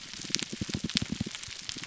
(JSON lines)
{"label": "biophony, pulse", "recorder": "SoundTrap 300"}